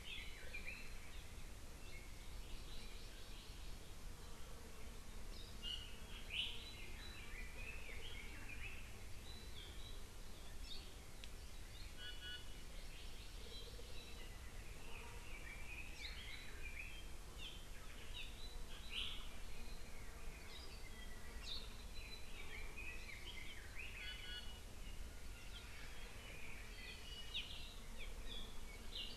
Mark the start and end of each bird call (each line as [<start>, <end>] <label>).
[0.00, 0.89] Red-billed Leiothrix (Leiothrix lutea)
[2.39, 3.79] Hawaii Amakihi (Chlorodrepanis virens)
[5.59, 5.99] Iiwi (Drepanis coccinea)
[7.09, 8.89] Red-billed Leiothrix (Leiothrix lutea)
[11.99, 12.59] Iiwi (Drepanis coccinea)
[12.79, 13.69] Hawaii Amakihi (Chlorodrepanis virens)
[15.29, 17.19] Red-billed Leiothrix (Leiothrix lutea)
[21.99, 23.99] Red-billed Leiothrix (Leiothrix lutea)
[23.99, 24.59] Iiwi (Drepanis coccinea)